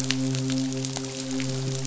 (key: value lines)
label: biophony, midshipman
recorder: SoundTrap 500